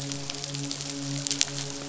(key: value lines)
label: biophony, midshipman
recorder: SoundTrap 500